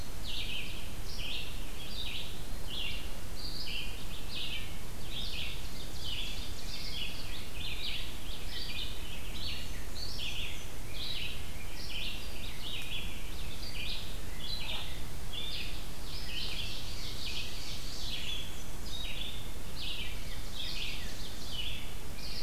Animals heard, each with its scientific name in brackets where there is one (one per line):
Ovenbird (Seiurus aurocapilla)
Black-and-white Warbler (Mniotilta varia)
Red-eyed Vireo (Vireo olivaceus)